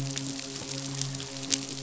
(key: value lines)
label: biophony, midshipman
recorder: SoundTrap 500